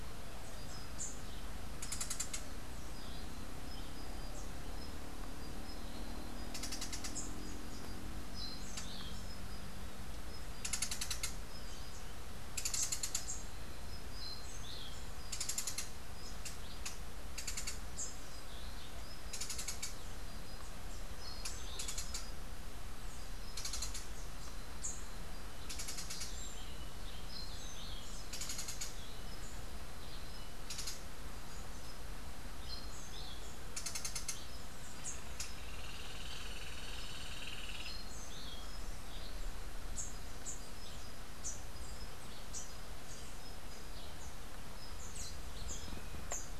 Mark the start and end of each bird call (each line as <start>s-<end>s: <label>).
35.4s-38.0s: Hoffmann's Woodpecker (Melanerpes hoffmannii)